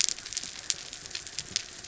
{"label": "anthrophony, mechanical", "recorder": "SoundTrap 300"}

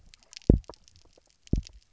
{"label": "biophony, double pulse", "recorder": "SoundTrap 300"}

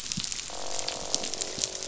{"label": "biophony, croak", "recorder": "SoundTrap 500"}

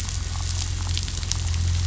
{"label": "anthrophony, boat engine", "recorder": "SoundTrap 500"}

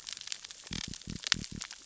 {"label": "biophony", "recorder": "SoundTrap 600 or HydroMoth"}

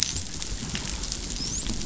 {"label": "biophony, dolphin", "recorder": "SoundTrap 500"}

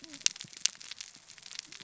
{"label": "biophony, cascading saw", "recorder": "SoundTrap 600 or HydroMoth"}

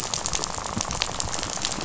{"label": "biophony, rattle", "recorder": "SoundTrap 500"}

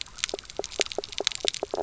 {"label": "biophony, knock croak", "recorder": "SoundTrap 300"}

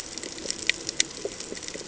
{"label": "ambient", "recorder": "HydroMoth"}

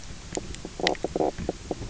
{"label": "biophony, knock croak", "recorder": "SoundTrap 300"}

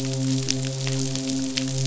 {"label": "biophony, midshipman", "recorder": "SoundTrap 500"}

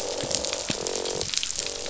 {"label": "biophony, croak", "recorder": "SoundTrap 500"}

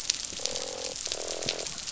{"label": "biophony, croak", "recorder": "SoundTrap 500"}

